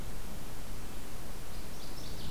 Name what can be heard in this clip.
Northern Waterthrush